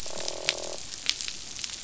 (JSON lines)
{"label": "biophony, croak", "recorder": "SoundTrap 500"}